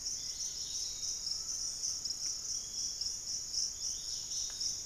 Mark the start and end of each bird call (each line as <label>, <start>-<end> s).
Hauxwell's Thrush (Turdus hauxwelli), 0.0-0.7 s
unidentified bird, 0.0-0.8 s
Dusky-capped Greenlet (Pachysylvia hypoxantha), 0.0-4.9 s
Piratic Flycatcher (Legatus leucophaius), 0.0-4.9 s
Undulated Tinamou (Crypturellus undulatus), 1.1-2.6 s